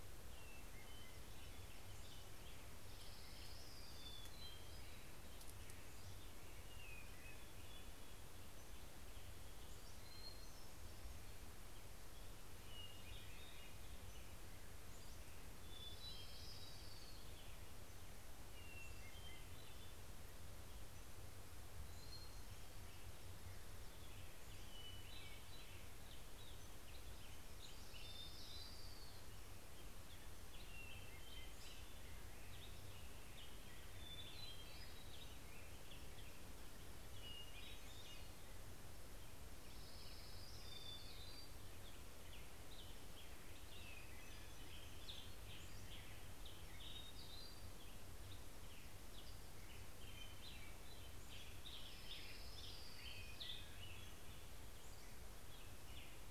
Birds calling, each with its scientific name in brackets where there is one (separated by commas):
Black-headed Grosbeak (Pheucticus melanocephalus), Orange-crowned Warbler (Leiothlypis celata), Hermit Warbler (Setophaga occidentalis), Pacific-slope Flycatcher (Empidonax difficilis), Hermit Thrush (Catharus guttatus)